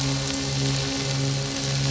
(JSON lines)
{"label": "anthrophony, boat engine", "recorder": "SoundTrap 500"}